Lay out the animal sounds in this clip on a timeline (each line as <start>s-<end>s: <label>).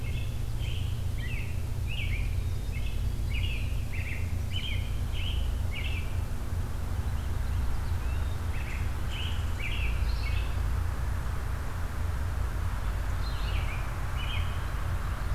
0.0s-6.3s: American Robin (Turdus migratorius)
7.9s-10.4s: American Robin (Turdus migratorius)
9.9s-10.7s: Red-eyed Vireo (Vireo olivaceus)
13.1s-13.8s: Red-eyed Vireo (Vireo olivaceus)
13.3s-14.7s: American Robin (Turdus migratorius)